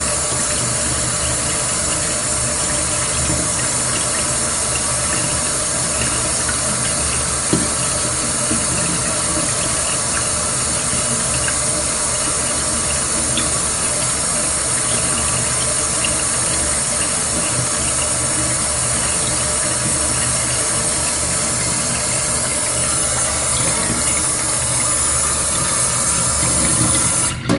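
Water runs continuously down a drain. 0.0 - 27.5
Water running continuously from a tap. 0.0 - 27.6

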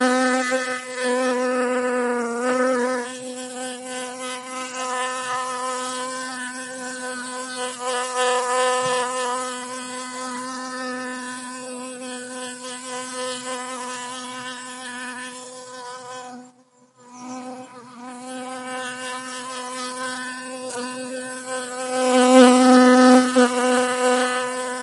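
An insect buzzes while flying around, moving closer and then farther away. 0.0 - 24.8

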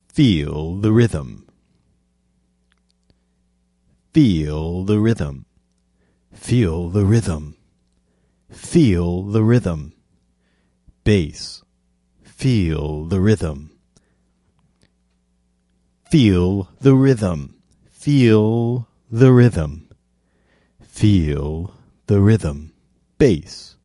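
A man is speaking clearly and closely into a microphone. 0.0 - 1.5
A man is speaking clearly and closely into a microphone. 4.1 - 5.6
A man is speaking clearly and closely into a microphone. 6.3 - 7.6
A man is speaking clearly and closely into a microphone. 8.6 - 10.0
A man is speaking clearly and closely into a microphone. 11.0 - 11.7
A man is speaking clearly and closely into a microphone. 12.3 - 13.7
A man is speaking clearly and closely into a microphone. 16.2 - 23.8

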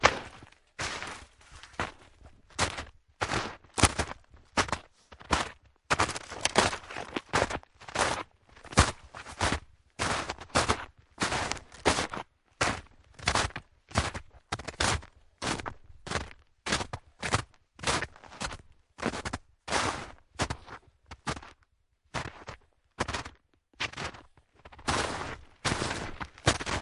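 Deep footsteps on snow. 0.1 - 26.8

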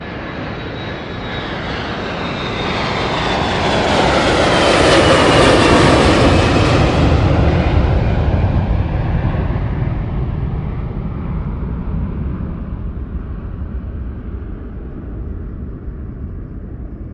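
An airplane flies closer. 0.0 - 5.9
Air whooshing. 0.0 - 17.1
An airplane is flying away. 5.8 - 12.4

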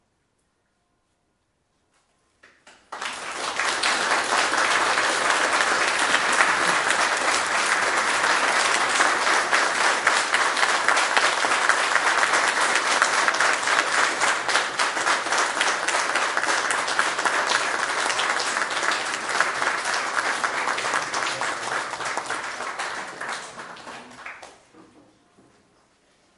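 A large audience clapping loudly and gradually fading. 2.9 - 24.3

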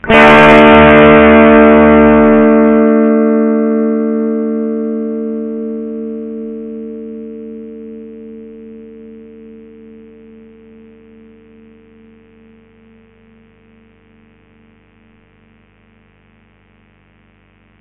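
A loud D chord is played on a guitar with slight distortion that gradually fades away, leaving a soft, lingering resonance. 0.0 - 17.8

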